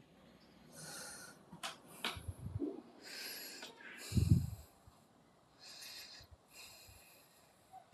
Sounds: Sniff